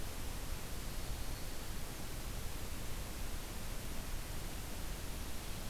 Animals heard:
forest ambience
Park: Marsh-Billings-Rockefeller National Historical Park